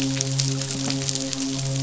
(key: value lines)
label: biophony, midshipman
recorder: SoundTrap 500